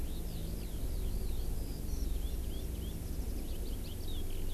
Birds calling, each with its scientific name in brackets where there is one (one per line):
Eurasian Skylark (Alauda arvensis)